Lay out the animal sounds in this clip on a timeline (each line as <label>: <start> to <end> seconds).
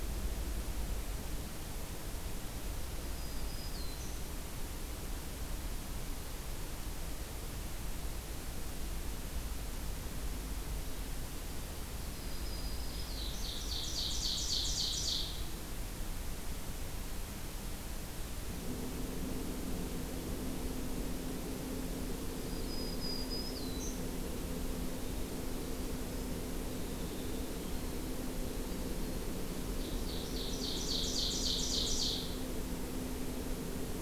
Black-throated Green Warbler (Setophaga virens): 3.1 to 4.3 seconds
Black-throated Green Warbler (Setophaga virens): 12.1 to 13.5 seconds
Ovenbird (Seiurus aurocapilla): 12.8 to 15.5 seconds
Black-throated Green Warbler (Setophaga virens): 22.4 to 24.0 seconds
Winter Wren (Troglodytes hiemalis): 25.0 to 29.8 seconds
Ovenbird (Seiurus aurocapilla): 29.7 to 32.5 seconds